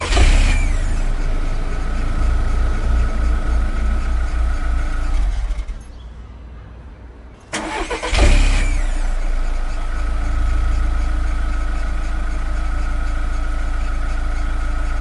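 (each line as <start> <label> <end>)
0.0 A car engine starts and stops, producing loud exhaust burbling and revving noises. 5.8
7.5 A car engine starts and stops with loud exhaust burbles and revving noises, ending in a continuous sound. 15.0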